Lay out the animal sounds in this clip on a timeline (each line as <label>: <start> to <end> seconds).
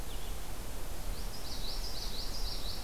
Blue-headed Vireo (Vireo solitarius): 0.0 to 2.8 seconds
Common Yellowthroat (Geothlypis trichas): 1.1 to 2.8 seconds